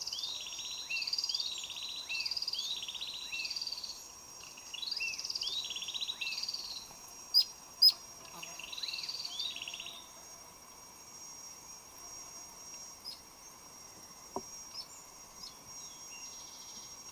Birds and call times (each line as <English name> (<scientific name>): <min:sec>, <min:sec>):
Hunter's Cisticola (Cisticola hunteri): 0:01.7
Cinnamon-chested Bee-eater (Merops oreobates): 0:07.4, 0:13.1